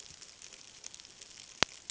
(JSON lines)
{"label": "ambient", "recorder": "HydroMoth"}